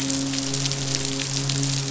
{"label": "biophony, midshipman", "recorder": "SoundTrap 500"}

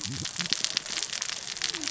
{"label": "biophony, cascading saw", "recorder": "SoundTrap 600 or HydroMoth"}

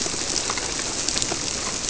{"label": "biophony", "recorder": "SoundTrap 300"}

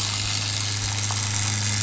{"label": "anthrophony, boat engine", "recorder": "SoundTrap 500"}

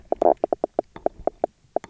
{"label": "biophony, knock croak", "recorder": "SoundTrap 300"}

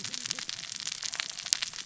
{"label": "biophony, cascading saw", "recorder": "SoundTrap 600 or HydroMoth"}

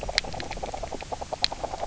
{"label": "biophony, grazing", "recorder": "SoundTrap 300"}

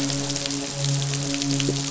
{"label": "biophony, midshipman", "recorder": "SoundTrap 500"}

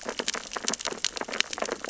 {"label": "biophony, sea urchins (Echinidae)", "recorder": "SoundTrap 600 or HydroMoth"}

